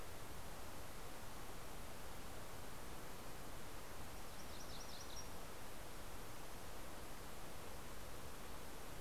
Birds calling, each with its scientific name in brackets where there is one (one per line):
MacGillivray's Warbler (Geothlypis tolmiei)